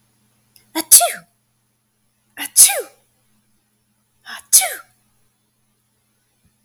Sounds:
Sneeze